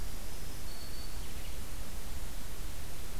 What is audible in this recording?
Black-throated Green Warbler